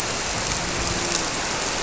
{"label": "biophony, grouper", "recorder": "SoundTrap 300"}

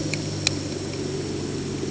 {"label": "anthrophony, boat engine", "recorder": "HydroMoth"}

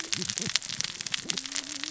{"label": "biophony, cascading saw", "recorder": "SoundTrap 600 or HydroMoth"}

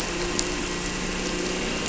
{"label": "anthrophony, boat engine", "recorder": "SoundTrap 300"}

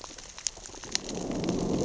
{"label": "biophony, growl", "recorder": "SoundTrap 600 or HydroMoth"}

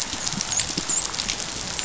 {"label": "biophony, dolphin", "recorder": "SoundTrap 500"}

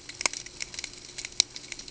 {"label": "ambient", "recorder": "HydroMoth"}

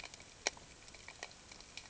{"label": "ambient", "recorder": "HydroMoth"}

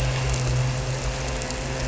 {"label": "anthrophony, boat engine", "recorder": "SoundTrap 300"}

